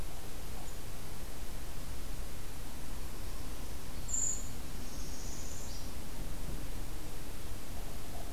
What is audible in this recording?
Brown Creeper, Northern Parula